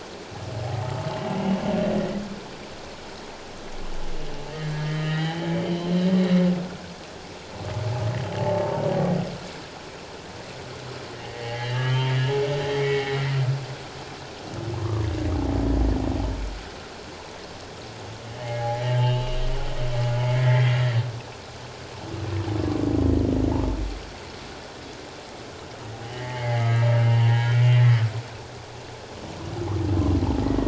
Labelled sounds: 4.7	5.5	humpback whale, 0.78 to 4.1 kHz
8.4	9.0	humpback whale, 0.78 to 1.0 kHz
11.3	12.1	humpback whale, 0.78 to 3.3 kHz
12.8	13.2	humpback whale, 1.9 to 2.3 kHz
14.8	15.1	humpback whale, 0.97 to 1.2 kHz
18.3	19.4	humpback whale, 0.78 to 3.2 kHz
20.2	20.8	humpback whale, 1.8 to 2.4 kHz
26.1	27.9	humpback whale, 0.78 to 3.2 kHz

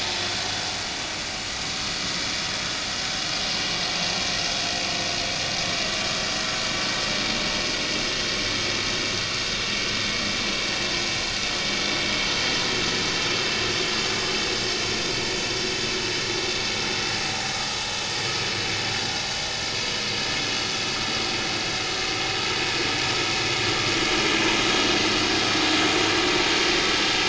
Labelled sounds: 24.3	24.7	vessel noise, 6.0 to 6.1 kHz
26.2	26.5	vessel noise, 2.3 to 2.4 kHz

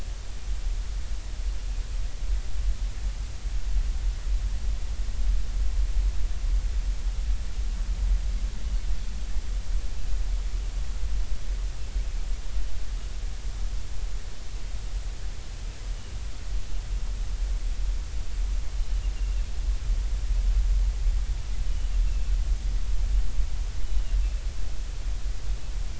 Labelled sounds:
19.1	19.4	Pacific white-sided dolphin, 2.6 to 2.9 kHz
21.7	22.3	Pacific white-sided dolphin, 2.5 to 3.0 kHz

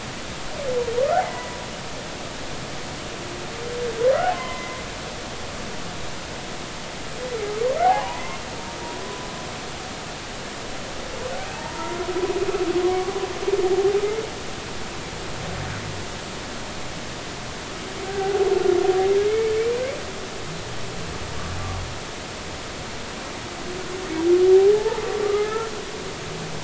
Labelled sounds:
1.2	1.6	humpback whale, 1.9 to 2.1 kHz
4.3	4.8	humpback whale, 0.96 to 2.1 kHz
7.8	8.4	humpback whale, 0.80 to 2.2 kHz
11.5	12.0	humpback whale, 0.83 to 1.0 kHz
12.8	13.2	humpback whale, 0.99 to 1.2 kHz
18.0	18.4	humpback whale, 0.80 to 1.7 kHz
19.3	19.5	humpback whale, 2.1 to 2.3 kHz
24.7	25.7	humpback whale, 0.83 to 1.8 kHz

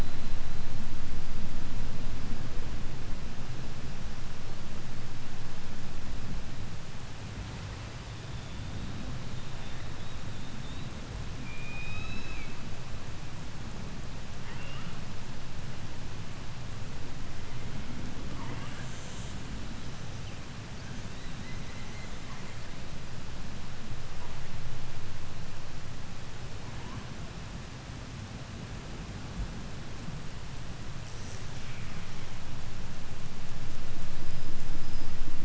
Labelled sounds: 0.0	0.9	killer whale, 3.8 to 4.4 kHz
8.0	11.0	killer whale, 3.2 to 4.0 kHz
11.4	12.6	killer whale, 0.80 to 7.1 kHz
14.3	15.1	killer whale, 0.27 to 3.7 kHz
18.0	19.5	killer whale, 0.20 to 8.0 kHz
20.2	22.8	killer whale, 0.65 to 8.0 kHz
30.8	32.3	killer whale, 0.33 to 8.0 kHz
34.0	35.4	killer whale, 4.0 to 8.0 kHz

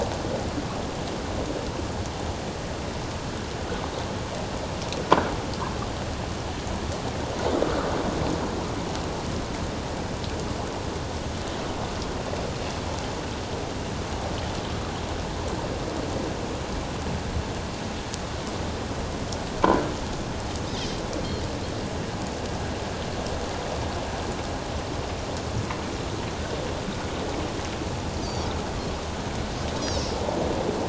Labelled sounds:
28.2	28.5	Pacific white-sided dolphin, 4.4 to 5.0 kHz
29.8	30.1	Pacific white-sided dolphin, 5.0 to 5.9 kHz

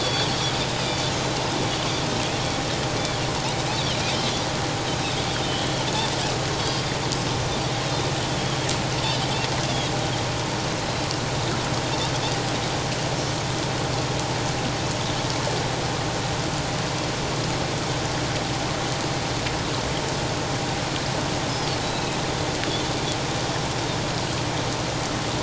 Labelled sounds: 0.0	1.1	Pacific white-sided dolphin, 3.1 to 4.7 kHz
3.7	4.0	Pacific white-sided dolphin, 2.9 to 3.6 kHz
5.3	5.8	Pacific white-sided dolphin, 3.0 to 3.4 kHz
7.4	7.7	Pacific white-sided dolphin, 5.6 to 6.1 kHz
21.9	22.2	Pacific white-sided dolphin, 2.5 to 2.7 kHz

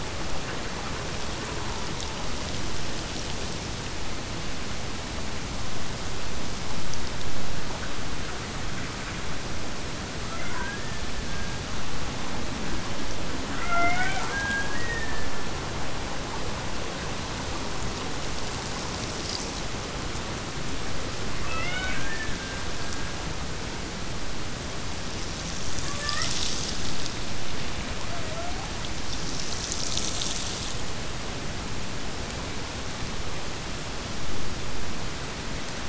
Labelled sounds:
10.1	11.7	killer whale, Bigg's (transient), Gulf of Alaska transient, 0.37 to 2.4 kHz
13.5	15.6	killer whale, Bigg's (transient), Gulf of Alaska transient, 0.53 to 3.5 kHz
21.4	23.3	killer whale, Bigg's (transient), Gulf of Alaska transient, 0.99 to 3.8 kHz

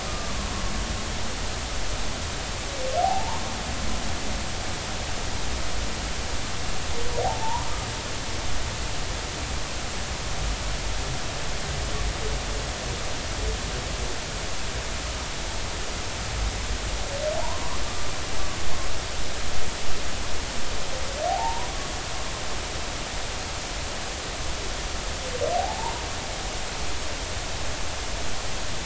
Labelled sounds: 0.0	0.3	humpback whale, 1.1 to 1.3 kHz
4.0	4.4	humpback whale, 0.80 to 1.1 kHz
7.2	7.7	humpback whale, 0.80 to 1.1 kHz
17.4	18.1	humpback whale, 0.80 to 1.2 kHz
21.3	21.7	humpback whale, 0.80 to 1.0 kHz
25.5	26.0	humpback whale, 0.80 to 1.0 kHz

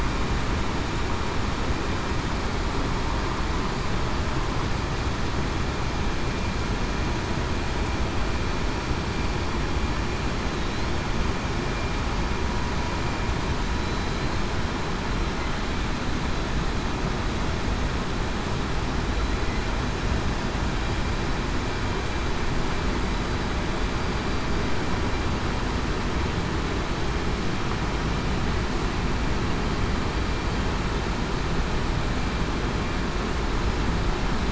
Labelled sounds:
13.7	14.4	killer whale, southern resident, 3.9 to 4.3 kHz

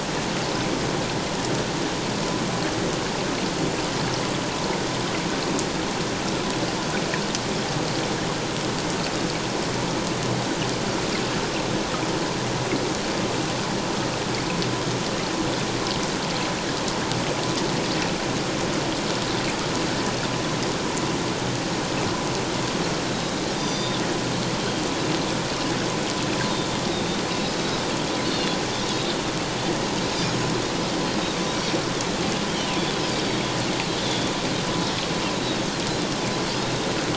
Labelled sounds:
23.1	24.0	Pacific white-sided dolphin, 3.5 to 6.0 kHz
28.2	28.6	Pacific white-sided dolphin, 3.3 to 3.7 kHz
28.9	29.2	Pacific white-sided dolphin, 3.5 to 3.8 kHz
30.2	30.5	Pacific white-sided dolphin, 6.5 to 6.7 kHz
32.5	32.9	Pacific white-sided dolphin, 2.3 to 3.3 kHz
34.0	34.3	Pacific white-sided dolphin, 3.2 to 3.7 kHz

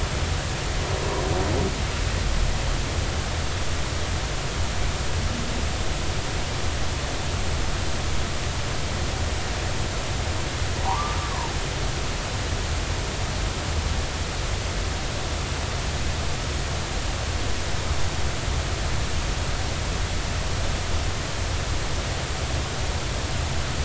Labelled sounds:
10.8	11.2	humpback whale, 0.80 to 1.3 kHz

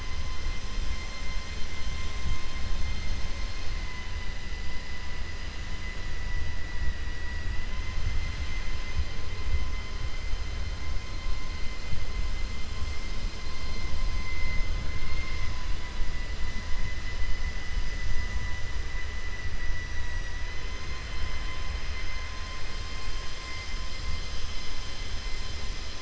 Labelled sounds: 14.9	15.7	vessel noise, 1.1 to 5.3 kHz

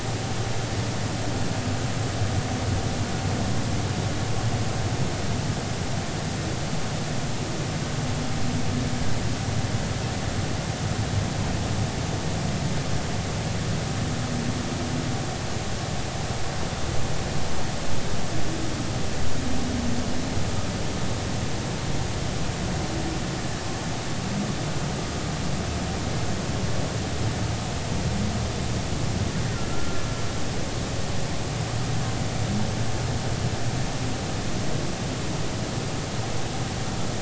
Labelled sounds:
29.7	30.0	humpback whale, 1.3 to 1.4 kHz

